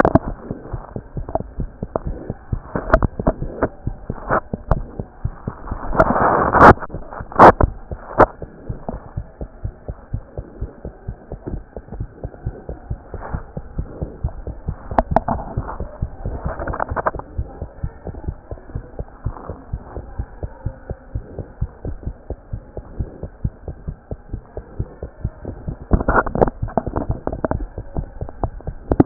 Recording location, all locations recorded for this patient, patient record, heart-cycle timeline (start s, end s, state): mitral valve (MV)
aortic valve (AV)+mitral valve (MV)
#Age: Infant
#Sex: Male
#Height: 64.0 cm
#Weight: 6.12 kg
#Pregnancy status: False
#Murmur: Absent
#Murmur locations: nan
#Most audible location: nan
#Systolic murmur timing: nan
#Systolic murmur shape: nan
#Systolic murmur grading: nan
#Systolic murmur pitch: nan
#Systolic murmur quality: nan
#Diastolic murmur timing: nan
#Diastolic murmur shape: nan
#Diastolic murmur grading: nan
#Diastolic murmur pitch: nan
#Diastolic murmur quality: nan
#Outcome: Abnormal
#Campaign: 2015 screening campaign
0.00	10.10	unannotated
10.10	10.22	S1
10.22	10.34	systole
10.34	10.44	S2
10.44	10.59	diastole
10.59	10.69	S1
10.69	10.82	systole
10.82	10.92	S2
10.92	11.06	diastole
11.06	11.17	S1
11.17	11.28	systole
11.28	11.37	S2
11.37	11.51	diastole
11.51	11.59	S1
11.59	11.74	systole
11.74	11.81	S2
11.81	11.98	diastole
11.98	12.06	S1
12.06	12.22	systole
12.22	12.30	S2
12.30	12.44	diastole
12.44	12.54	S1
12.54	12.67	diastole
12.67	12.75	S2
12.75	12.89	diastole
12.89	12.98	S1
12.98	13.12	systole
13.12	13.21	S2
13.21	13.31	diastole
13.31	13.41	S1
13.41	13.55	systole
13.55	13.62	S2
13.62	13.76	diastole
13.76	13.85	S1
13.85	13.99	systole
13.99	14.07	S2
14.07	14.23	diastole
14.23	14.30	S1
14.30	14.46	systole
14.46	14.55	S2
14.55	14.66	diastole
14.66	14.75	S1
14.75	29.06	unannotated